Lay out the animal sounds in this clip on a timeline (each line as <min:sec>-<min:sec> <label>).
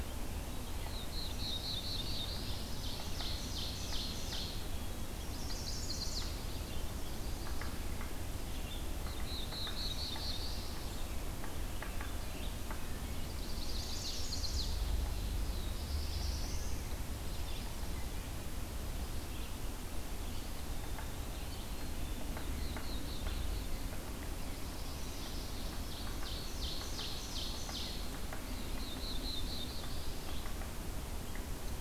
0:00.8-0:02.5 Black-throated Blue Warbler (Setophaga caerulescens)
0:02.1-0:04.8 Ovenbird (Seiurus aurocapilla)
0:05.2-0:06.4 Chestnut-sided Warbler (Setophaga pensylvanica)
0:08.9-0:10.9 Black-throated Blue Warbler (Setophaga caerulescens)
0:11.7-0:13.5 Wood Thrush (Hylocichla mustelina)
0:13.2-0:14.8 Chestnut-sided Warbler (Setophaga pensylvanica)
0:15.3-0:16.9 Black-throated Blue Warbler (Setophaga caerulescens)
0:20.2-0:21.9 Eastern Wood-Pewee (Contopus virens)
0:21.5-0:22.4 Black-capped Chickadee (Poecile atricapillus)
0:21.9-0:23.9 Black-throated Blue Warbler (Setophaga caerulescens)
0:24.3-0:25.5 Northern Parula (Setophaga americana)
0:25.1-0:28.2 Ovenbird (Seiurus aurocapilla)
0:28.4-0:30.8 Black-throated Blue Warbler (Setophaga caerulescens)